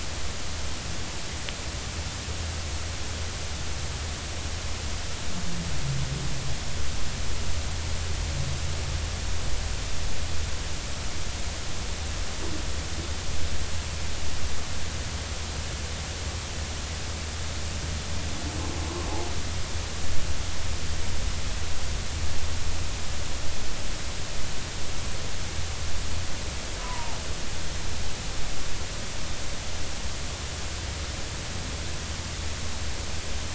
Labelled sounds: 26.8	27.2	humpback whale, 0.83 to 1.1 kHz

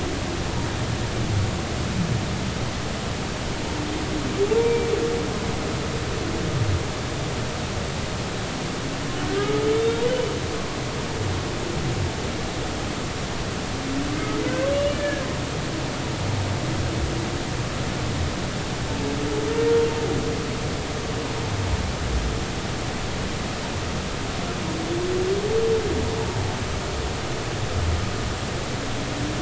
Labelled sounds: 4.5	4.9	humpback whale, 0.83 to 2.4 kHz
9.3	10.1	humpback whale, 1.2 to 3.8 kHz
14.7	15.2	humpback whale, 1.6 to 2.9 kHz

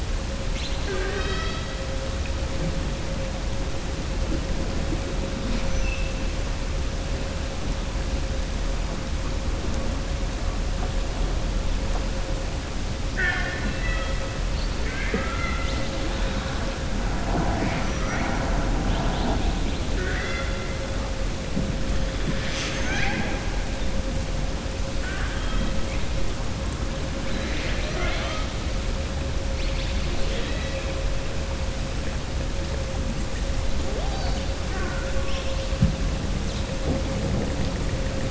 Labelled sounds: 13.0	14.2	killer whale, southern resident, 0.73 to 4.0 kHz
17.8	18.2	killer whale, southern resident, 5.8 to 6.4 kHz
19.9	20.5	killer whale, southern resident, 1.4 to 5.5 kHz
22.3	23.4	killer whale, southern resident, 0.62 to 7.6 kHz
27.2	28.5	killer whale, southern resident, 0.60 to 5.9 kHz

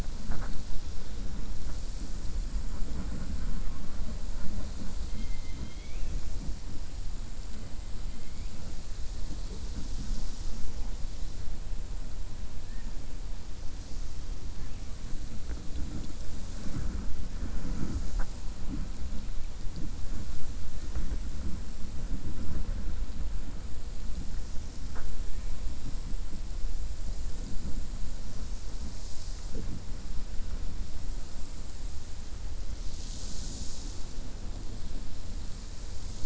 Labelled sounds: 5.0	6.2	killer whale, 2.1 to 4.1 kHz

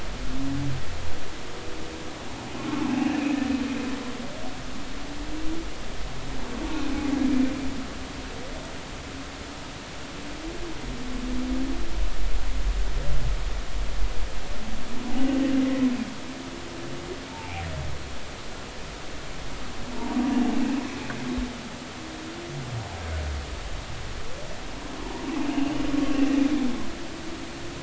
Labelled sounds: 3.0	3.2	humpback whale, 2.5 to 2.8 kHz
17.3	17.6	humpback whale, 0.80 to 0.96 kHz
25.0	25.8	humpback whale, 0.86 to 2.9 kHz

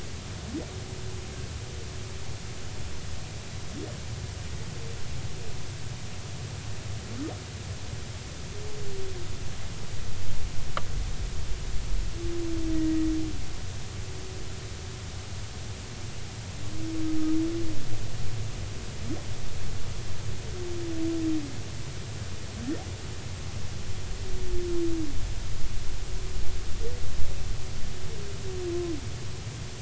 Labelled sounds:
12.7	13.1	humpback whale, 1.9 to 2.0 kHz

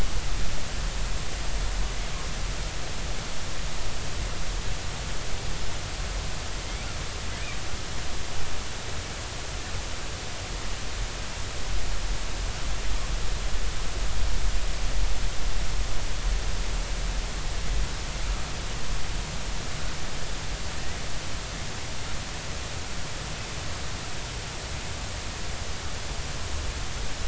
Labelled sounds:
6.6	6.9	killer whale, southern resident, J clan, 2.0 to 2.5 kHz

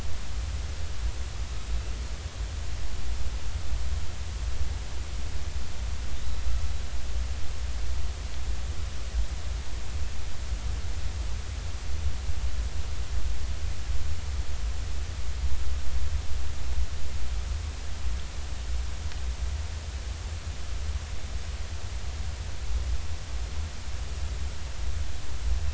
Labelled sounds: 6.2	6.4	killer whale, northern resident, 3.5 to 4.0 kHz

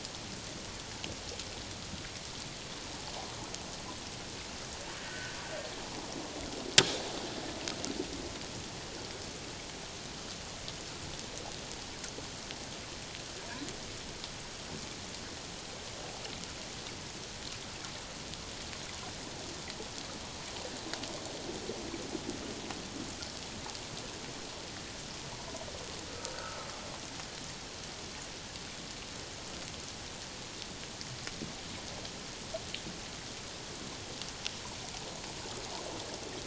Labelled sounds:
5.0	5.4	humpback whale, 1.4 to 1.6 kHz
26.3	26.7	humpback whale, 1.2 to 1.6 kHz

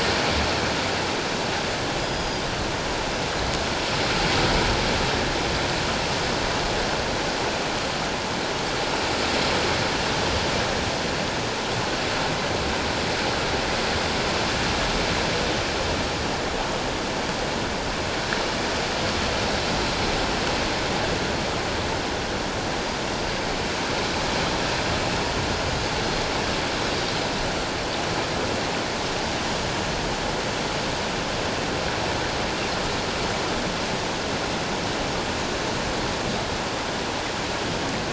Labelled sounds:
2.0	2.4	Pacific white-sided dolphin, 4.7 to 5.1 kHz

